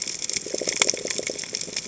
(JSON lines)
{"label": "biophony", "recorder": "HydroMoth"}